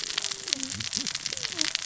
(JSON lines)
{"label": "biophony, cascading saw", "recorder": "SoundTrap 600 or HydroMoth"}